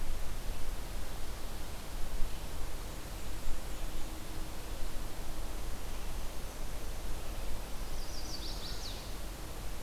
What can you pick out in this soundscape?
Black-and-white Warbler, Chestnut-sided Warbler